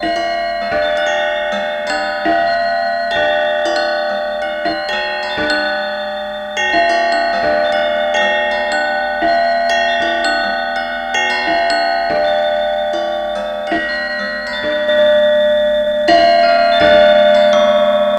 Is this a chiming type of noise?
yes